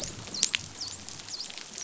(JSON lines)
{"label": "biophony, dolphin", "recorder": "SoundTrap 500"}